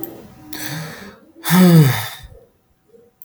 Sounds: Sigh